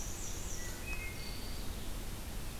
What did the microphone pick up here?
Black-and-white Warbler, Wood Thrush